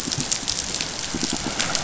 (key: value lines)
label: biophony, pulse
recorder: SoundTrap 500